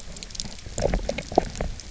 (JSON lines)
{"label": "biophony, knock croak", "recorder": "SoundTrap 300"}